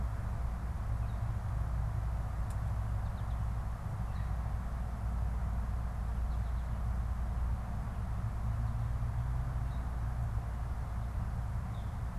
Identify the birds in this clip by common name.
American Goldfinch, unidentified bird